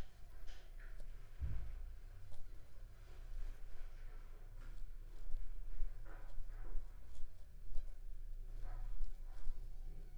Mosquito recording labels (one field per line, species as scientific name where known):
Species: Anopheles gambiae s.l.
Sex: female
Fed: unfed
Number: one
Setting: cup